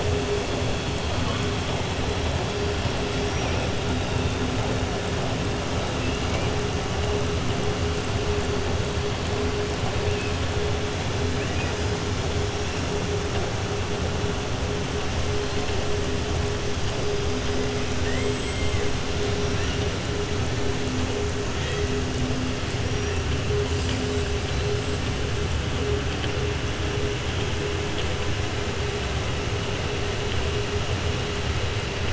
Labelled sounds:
3.1	3.6	killer whale, southern resident, 4.6 to 5.8 kHz
11.3	11.7	killer whale, southern resident, 1.7 to 3.2 kHz
18.0	18.9	killer whale, southern resident, 1.2 to 7.9 kHz

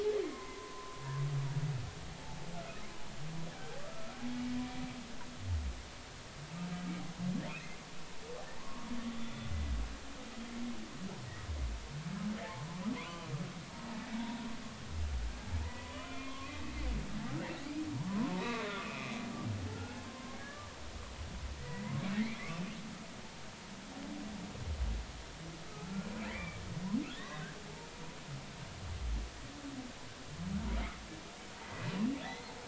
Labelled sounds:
0.3	1.0	humpback whale, 0.96 to 1.1 kHz
8.6	9.5	humpback whale, 0.86 to 3.6 kHz
12.4	13.3	humpback whale, 0.80 to 1.2 kHz
14.2	14.5	humpback whale, 0.90 to 0.99 kHz
15.6	16.6	humpback whale, 0.99 to 3.1 kHz
18.1	19.1	humpback whale, 0.93 to 2.6 kHz
20.0	20.7	humpback whale, 0.99 to 1.8 kHz
21.6	22.7	humpback whale, 0.93 to 2.7 kHz
26.3	27.5	humpback whale, 1.5 to 2.4 kHz
31.6	32.6	humpback whale, 1.4 to 4.3 kHz

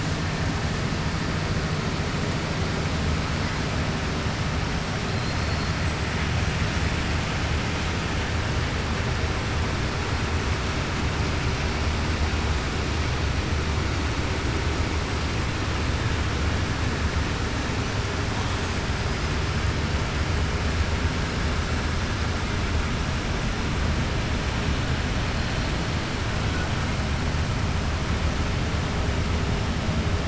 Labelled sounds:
5.1	5.7	killer whale, 4.1 to 4.8 kHz

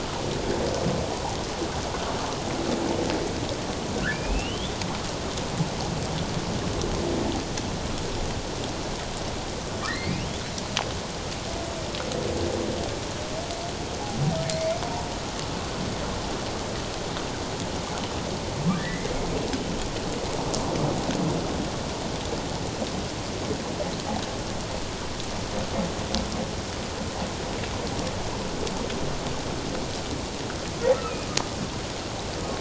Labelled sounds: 1.1	1.4	humpback whale, 0.78 to 1.0 kHz
4.1	4.7	humpback whale, 2.2 to 3.6 kHz
9.8	10.2	humpback whale, 1.7 to 2.5 kHz
18.7	19.1	humpback whale, 1.5 to 2.1 kHz
30.9	31.3	humpback whale, 1.2 to 2.7 kHz

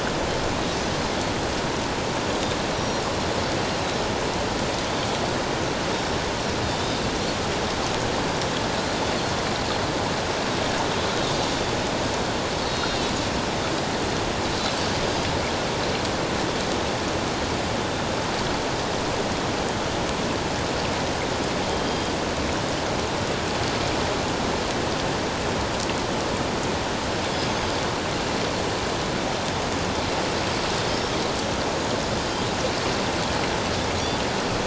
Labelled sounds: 2.8	3.1	Pacific white-sided dolphin, 5.4 to 5.8 kHz
3.8	4.0	Pacific white-sided dolphin, 3.8 to 4.0 kHz
6.6	7.0	Pacific white-sided dolphin, 3.5 to 3.8 kHz
11.1	11.4	Pacific white-sided dolphin, 3.7 to 3.9 kHz
12.6	13.1	Pacific white-sided dolphin, 3.6 to 4.5 kHz
21.8	22.1	Pacific white-sided dolphin, 4.8 to 4.9 kHz

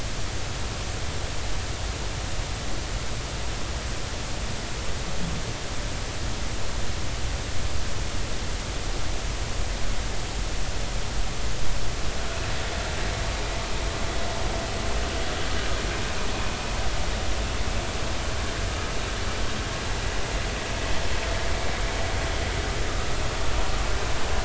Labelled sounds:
22.9	23.1	vessel noise, 1.1 to 1.4 kHz

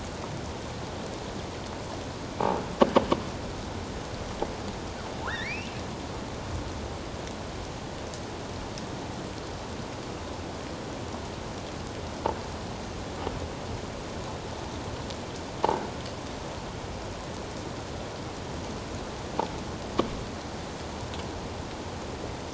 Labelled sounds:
5.3	5.7	killer whale, offshore, 1.2 to 5.7 kHz

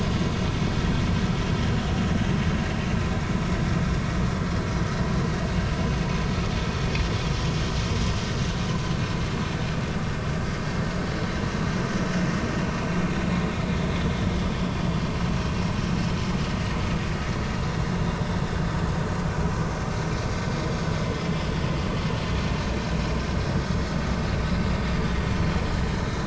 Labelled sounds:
21.8	23.0	vessel noise, 3.0 to 4.0 kHz

